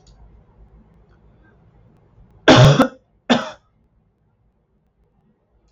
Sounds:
Cough